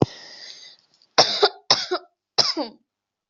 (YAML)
expert_labels:
- quality: ok
  cough_type: dry
  dyspnea: false
  wheezing: false
  stridor: false
  choking: false
  congestion: false
  nothing: true
  diagnosis: lower respiratory tract infection
  severity: mild
- quality: good
  cough_type: dry
  dyspnea: true
  wheezing: false
  stridor: false
  choking: false
  congestion: false
  nothing: false
  diagnosis: COVID-19
  severity: mild
- quality: good
  cough_type: dry
  dyspnea: false
  wheezing: false
  stridor: false
  choking: false
  congestion: false
  nothing: true
  diagnosis: upper respiratory tract infection
  severity: mild
- quality: good
  cough_type: dry
  dyspnea: false
  wheezing: false
  stridor: false
  choking: false
  congestion: false
  nothing: true
  diagnosis: upper respiratory tract infection
  severity: mild
age: 26
gender: female
respiratory_condition: true
fever_muscle_pain: false
status: COVID-19